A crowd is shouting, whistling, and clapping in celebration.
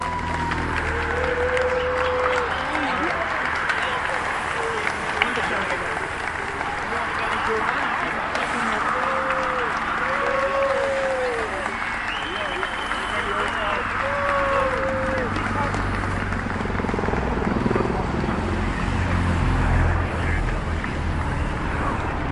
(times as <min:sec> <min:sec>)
0:00.0 0:16.8